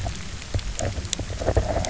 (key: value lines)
label: biophony, knock croak
recorder: SoundTrap 300